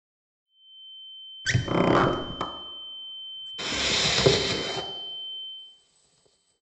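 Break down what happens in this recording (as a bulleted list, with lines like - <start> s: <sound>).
- 0.4 s: there is a quiet sine wave that fades in, plays throughout and fades out
- 1.4 s: the sound of a car is heard
- 3.6 s: you can hear wooden furniture moving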